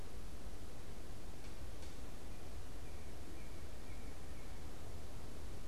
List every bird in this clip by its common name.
Northern Cardinal